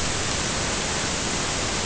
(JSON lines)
{"label": "ambient", "recorder": "HydroMoth"}